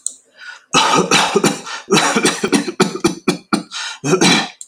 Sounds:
Cough